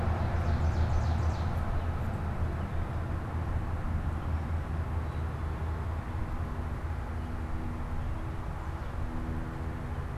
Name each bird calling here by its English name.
Ovenbird